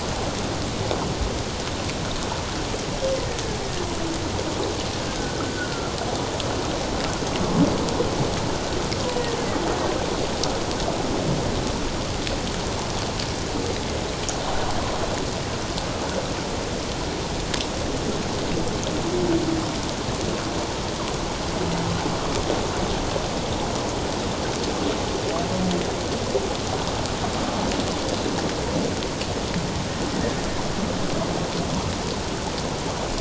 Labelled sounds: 5.2	5.9	humpback whale, 1.3 to 1.6 kHz

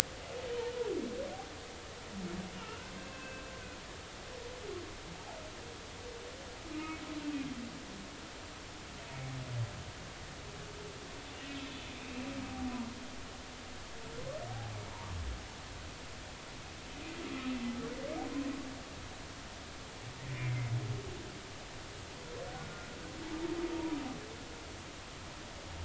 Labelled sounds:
2.6	3.5	humpback whale, 1.3 to 1.7 kHz
4.0	4.4	humpback whale, 2.5 to 2.7 kHz
6.7	7.0	humpback whale, 1.2 to 2.6 kHz
14.9	15.2	humpback whale, 0.86 to 1.1 kHz
20.3	20.7	humpback whale, 2.0 to 2.4 kHz
22.5	22.9	humpback whale, 1.4 to 1.5 kHz
23.7	24.0	humpback whale, 0.90 to 1.0 kHz

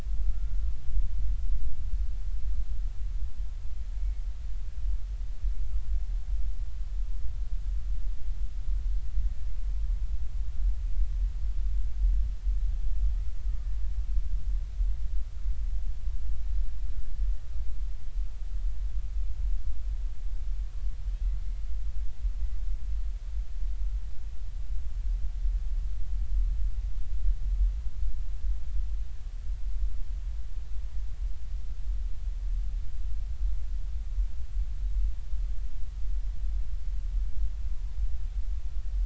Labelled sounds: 0.3	0.7	killer whale, Bigg's (transient), 1.3 to 1.5 kHz

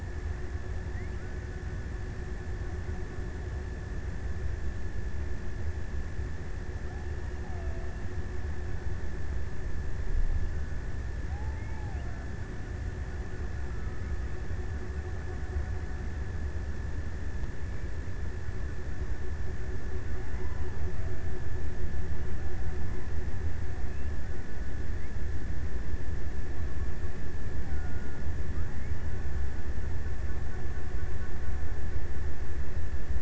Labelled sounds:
6.6	9.1	killer whale, Bigg's (transient), 0.48 to 1.1 kHz
10.4	17.3	killer whale, Bigg's (transient), 0.55 to 1.1 kHz
19.7	21.5	killer whale, Bigg's (transient), 0.49 to 1.1 kHz

